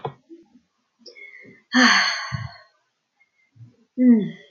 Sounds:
Sigh